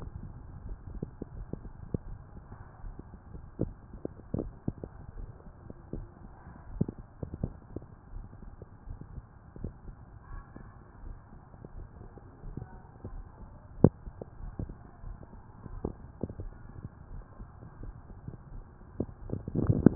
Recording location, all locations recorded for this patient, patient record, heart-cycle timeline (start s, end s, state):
mitral valve (MV)
pulmonary valve (PV)+tricuspid valve (TV)+mitral valve (MV)
#Age: nan
#Sex: Female
#Height: nan
#Weight: nan
#Pregnancy status: True
#Murmur: Absent
#Murmur locations: nan
#Most audible location: nan
#Systolic murmur timing: nan
#Systolic murmur shape: nan
#Systolic murmur grading: nan
#Systolic murmur pitch: nan
#Systolic murmur quality: nan
#Diastolic murmur timing: nan
#Diastolic murmur shape: nan
#Diastolic murmur grading: nan
#Diastolic murmur pitch: nan
#Diastolic murmur quality: nan
#Outcome: Normal
#Campaign: 2015 screening campaign
0.00	8.49	unannotated
8.49	8.84	diastole
8.84	8.98	S1
8.98	9.10	systole
9.10	9.21	S2
9.21	9.60	diastole
9.60	9.74	S1
9.74	9.86	systole
9.86	9.96	S2
9.96	10.30	diastole
10.30	10.44	S1
10.44	10.56	systole
10.56	10.66	S2
10.66	11.04	diastole
11.04	11.16	S1
11.16	11.22	systole
11.22	11.32	S2
11.32	11.76	diastole
11.76	11.90	S1
11.90	12.00	systole
12.00	12.10	S2
12.10	12.44	diastole
12.44	12.53	S1
12.53	12.59	systole
12.59	12.70	S2
12.70	13.04	diastole
13.04	13.26	S1
13.26	13.38	systole
13.38	13.47	S2
13.47	13.78	diastole
13.78	13.92	S1
13.92	14.03	systole
14.03	14.12	S2
14.12	14.40	diastole
14.40	14.54	S1
14.54	14.60	systole
14.60	14.74	S2
14.74	15.04	diastole
15.04	15.18	S1
15.18	15.29	systole
15.29	15.42	S2
15.42	15.70	diastole
15.70	15.81	S1
15.81	15.84	systole
15.84	15.98	S2
15.98	16.38	diastole
16.38	16.54	S1
16.54	16.60	systole
16.60	16.66	S2
16.66	17.10	diastole
17.10	17.26	S1
17.26	17.40	systole
17.40	17.50	S2
17.50	17.82	diastole
17.82	17.94	S1
17.94	18.05	systole
18.05	18.15	S2
18.15	18.34	diastole
18.34	18.44	S1
18.44	18.54	systole
18.54	18.64	S2
18.64	18.96	diastole
18.96	19.95	unannotated